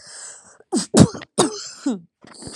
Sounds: Sneeze